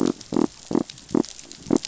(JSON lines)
{"label": "biophony", "recorder": "SoundTrap 500"}